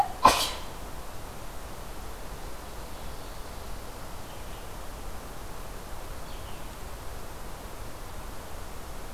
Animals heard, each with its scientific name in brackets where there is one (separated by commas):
Ovenbird (Seiurus aurocapilla), Red-eyed Vireo (Vireo olivaceus)